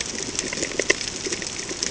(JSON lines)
{"label": "ambient", "recorder": "HydroMoth"}